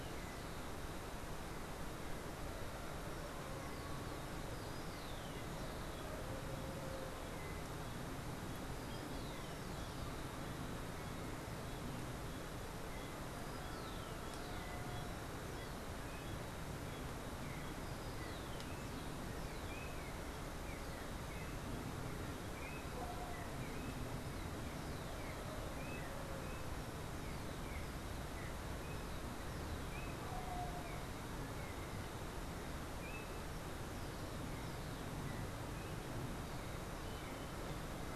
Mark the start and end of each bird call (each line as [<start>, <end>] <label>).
[0.00, 10.59] Rufous-collared Sparrow (Zonotrichia capensis)
[12.49, 38.15] Yellow-backed Oriole (Icterus chrysater)